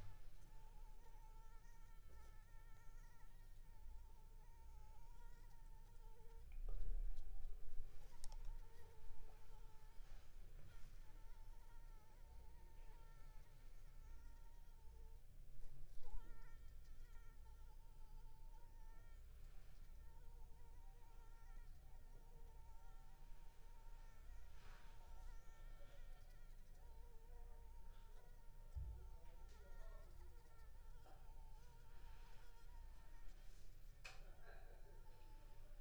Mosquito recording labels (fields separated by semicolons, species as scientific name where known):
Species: Anopheles arabiensis; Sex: female; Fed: unfed; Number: one; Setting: cup